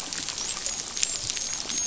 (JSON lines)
{"label": "biophony, dolphin", "recorder": "SoundTrap 500"}